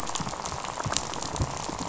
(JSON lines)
{"label": "biophony, rattle", "recorder": "SoundTrap 500"}